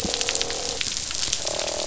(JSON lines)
{"label": "biophony, croak", "recorder": "SoundTrap 500"}